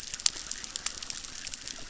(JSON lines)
{"label": "biophony, chorus", "recorder": "SoundTrap 600"}